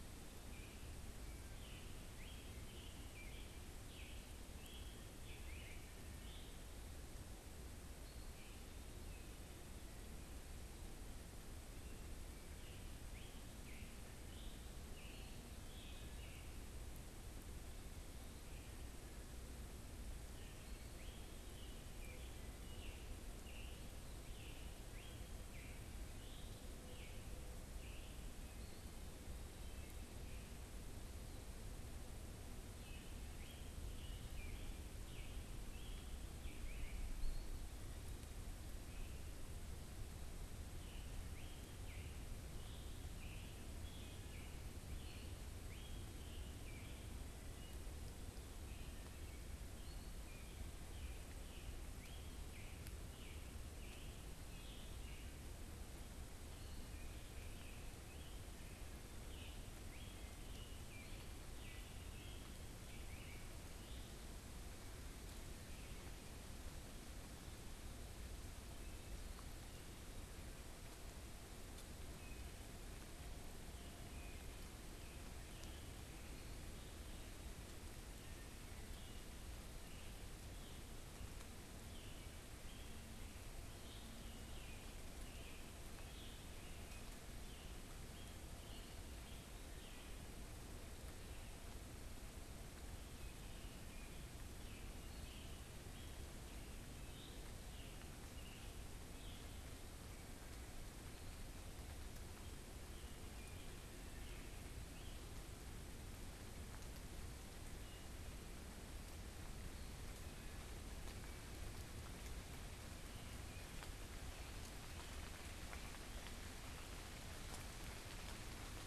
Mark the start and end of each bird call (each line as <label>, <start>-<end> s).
Scarlet Tanager (Piranga olivacea), 0.3-6.5 s
Wood Thrush (Hylocichla mustelina), 1.1-1.9 s
Scarlet Tanager (Piranga olivacea), 11.8-16.5 s
Scarlet Tanager (Piranga olivacea), 20.5-28.2 s
Wood Thrush (Hylocichla mustelina), 29.4-30.2 s
Scarlet Tanager (Piranga olivacea), 32.7-37.1 s
Eastern Wood-Pewee (Contopus virens), 37.1-37.7 s
Scarlet Tanager (Piranga olivacea), 40.6-47.3 s
Wood Thrush (Hylocichla mustelina), 48.5-49.5 s
Scarlet Tanager (Piranga olivacea), 50.6-64.4 s
Eastern Wood-Pewee (Contopus virens), 60.9-61.5 s
Wood Thrush (Hylocichla mustelina), 65.5-66.4 s
Scarlet Tanager (Piranga olivacea), 71.9-90.1 s
Scarlet Tanager (Piranga olivacea), 94.5-99.6 s
Scarlet Tanager (Piranga olivacea), 102.2-105.3 s